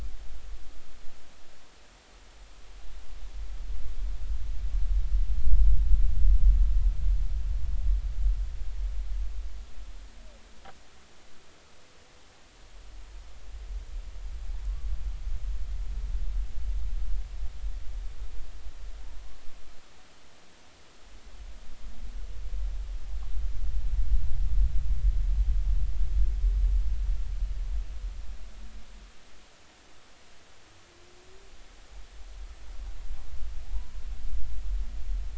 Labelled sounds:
33.7	34.0	humpback whale, 0.80 to 1.1 kHz

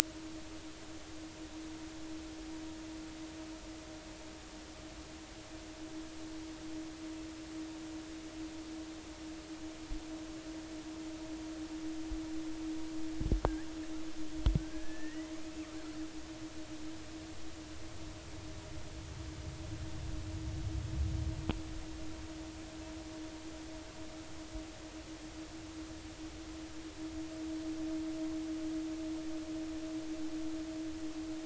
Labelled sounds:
14.6	15.3	killer whale, 1.5 to 2.1 kHz

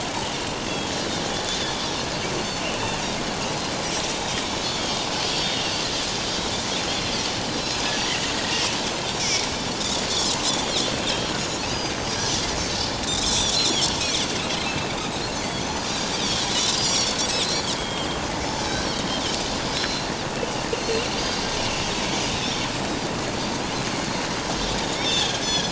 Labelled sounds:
1.5	1.8	Pacific white-sided dolphin, 3.3 to 3.6 kHz
3.6	3.8	Pacific white-sided dolphin, 4.0 to 4.2 kHz
4.6	5.6	Pacific white-sided dolphin, 3.1 to 3.6 kHz
7.6	8.3	Pacific white-sided dolphin, 1.8 to 4.2 kHz
9.2	9.5	Pacific white-sided dolphin, 2.1 to 2.5 kHz
10.7	11.3	Pacific white-sided dolphin, 3.1 to 3.6 kHz
11.7	11.9	Pacific white-sided dolphin, 4.6 to 5.0 kHz
12.8	13.6	Pacific white-sided dolphin, 3.2 to 8.0 kHz
14.7	15.7	Pacific white-sided dolphin, 2.6 to 4.7 kHz
16.2	16.5	Pacific white-sided dolphin, 3.0 to 3.9 kHz
16.8	18.2	Pacific white-sided dolphin, 2.8 to 8.0 kHz
19.7	21.5	Pacific white-sided dolphin, 3.9 to 4.9 kHz
24.9	25.7	Pacific white-sided dolphin, 3.0 to 5.6 kHz

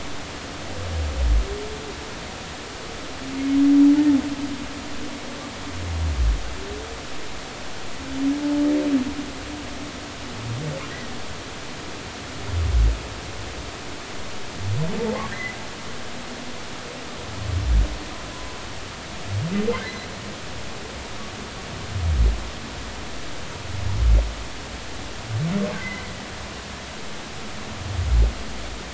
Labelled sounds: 15.3	15.6	humpback whale, 1.7 to 2.1 kHz
19.8	20.1	humpback whale, 1.9 to 2.1 kHz
25.8	26.1	humpback whale, 1.9 to 2.1 kHz

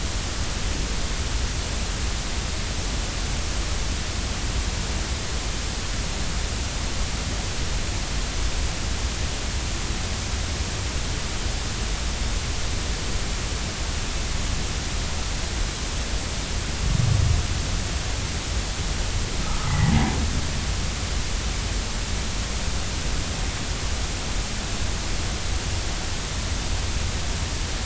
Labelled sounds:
19.7	19.9	humpback whale, 1.9 to 2.1 kHz

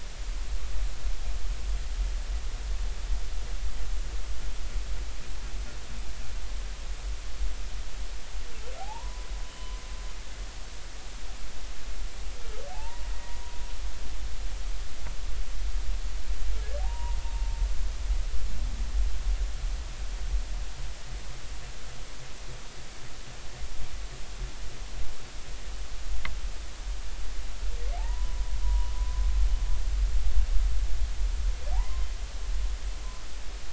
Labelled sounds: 8.8	9.8	humpback whale, 0.80 to 3.1 kHz
12.7	13.1	humpback whale, 0.80 to 1.0 kHz
16.8	17.2	humpback whale, 0.80 to 1.0 kHz
28.0	29.2	humpback whale, 0.80 to 1.1 kHz
31.7	32.1	humpback whale, 0.80 to 1.1 kHz

